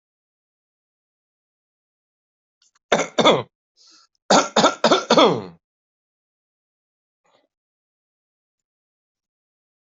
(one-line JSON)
{"expert_labels": [{"quality": "ok", "cough_type": "unknown", "dyspnea": false, "wheezing": false, "stridor": false, "choking": false, "congestion": false, "nothing": true, "diagnosis": "healthy cough", "severity": "pseudocough/healthy cough"}], "age": 45, "gender": "male", "respiratory_condition": false, "fever_muscle_pain": false, "status": "healthy"}